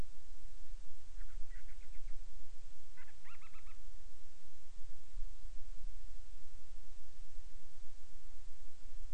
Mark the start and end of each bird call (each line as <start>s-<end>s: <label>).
1.1s-2.3s: Band-rumped Storm-Petrel (Hydrobates castro)
2.9s-3.9s: Band-rumped Storm-Petrel (Hydrobates castro)